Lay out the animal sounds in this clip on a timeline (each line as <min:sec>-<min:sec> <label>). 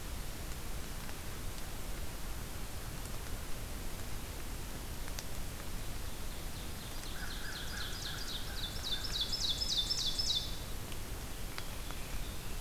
0:06.7-0:10.8 Ovenbird (Seiurus aurocapilla)
0:07.0-0:09.5 American Crow (Corvus brachyrhynchos)